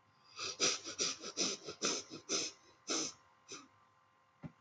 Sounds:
Sniff